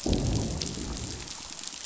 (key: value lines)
label: biophony, growl
recorder: SoundTrap 500